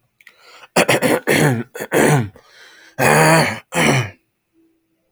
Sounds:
Throat clearing